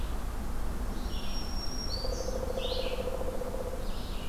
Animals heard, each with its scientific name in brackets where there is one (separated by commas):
Black-throated Green Warbler (Setophaga virens), Red-eyed Vireo (Vireo olivaceus), Pileated Woodpecker (Dryocopus pileatus)